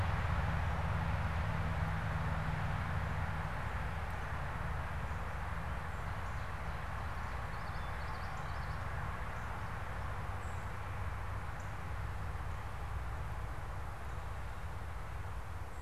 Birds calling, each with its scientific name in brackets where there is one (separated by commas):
Common Yellowthroat (Geothlypis trichas), Northern Cardinal (Cardinalis cardinalis), Black-capped Chickadee (Poecile atricapillus)